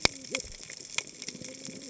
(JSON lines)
{"label": "biophony, cascading saw", "recorder": "HydroMoth"}